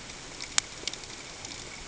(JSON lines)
{"label": "ambient", "recorder": "HydroMoth"}